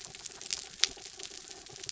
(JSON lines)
{"label": "anthrophony, mechanical", "recorder": "SoundTrap 300"}